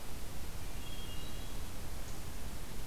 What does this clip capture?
Hermit Thrush